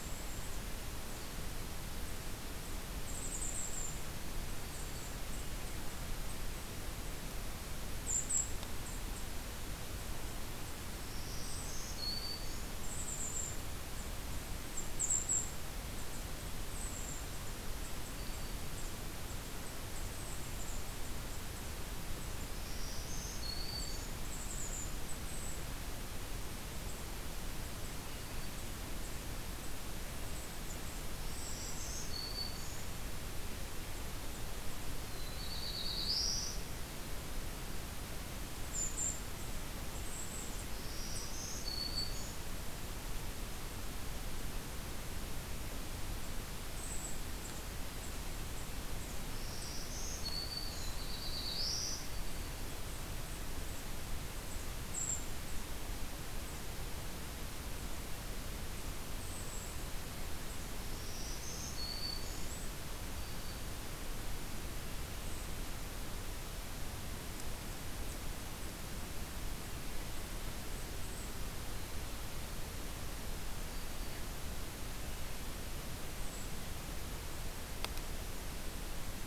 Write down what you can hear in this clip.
Golden-crowned Kinglet, Black-throated Green Warbler, Black-throated Blue Warbler